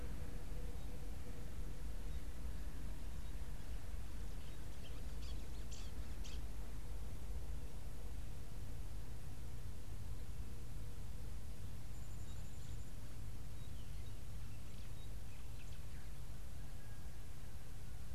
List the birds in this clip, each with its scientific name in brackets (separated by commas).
White-browed Sparrow-Weaver (Plocepasser mahali)